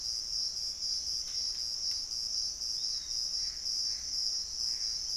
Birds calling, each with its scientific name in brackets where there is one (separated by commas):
Piratic Flycatcher (Legatus leucophaius), Gray Antbird (Cercomacra cinerascens)